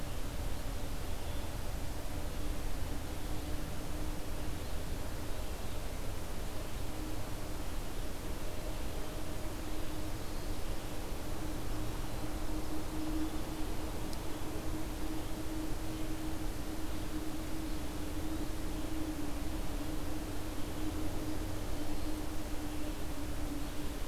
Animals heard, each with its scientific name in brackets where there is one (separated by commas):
Eastern Wood-Pewee (Contopus virens)